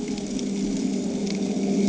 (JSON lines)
{"label": "anthrophony, boat engine", "recorder": "HydroMoth"}